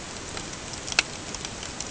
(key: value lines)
label: ambient
recorder: HydroMoth